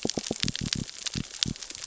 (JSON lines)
{"label": "biophony", "recorder": "SoundTrap 600 or HydroMoth"}